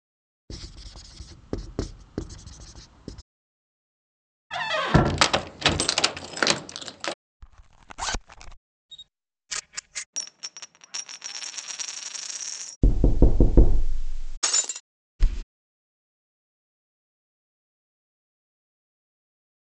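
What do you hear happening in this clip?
First, writing can be heard. Then there is loud squeaking. After that, the sound of a zipper is heard. Later, a camera can be heard. Following that, a coin drops. Then loud knocking is audible. After that, glass shatters. Later, wooden furniture moves.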